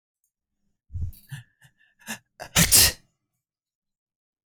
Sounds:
Sneeze